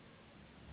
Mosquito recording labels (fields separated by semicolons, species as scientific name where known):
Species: Anopheles gambiae s.s.; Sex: female; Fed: unfed; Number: one; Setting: insect culture